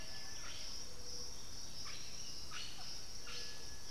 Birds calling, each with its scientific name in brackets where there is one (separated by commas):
Blue-headed Parrot (Pionus menstruus), Buff-throated Saltator (Saltator maximus), unidentified bird, Striped Cuckoo (Tapera naevia)